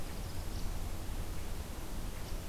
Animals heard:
forest ambience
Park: Marsh-Billings-Rockefeller National Historical Park